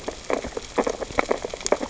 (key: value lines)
label: biophony, sea urchins (Echinidae)
recorder: SoundTrap 600 or HydroMoth